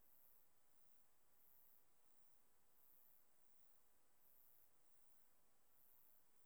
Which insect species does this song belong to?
Myrmeleotettix maculatus